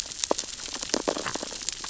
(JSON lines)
{"label": "biophony, sea urchins (Echinidae)", "recorder": "SoundTrap 600 or HydroMoth"}